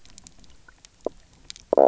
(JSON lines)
{"label": "biophony, knock croak", "recorder": "SoundTrap 300"}